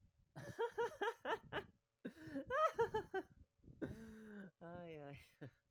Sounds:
Laughter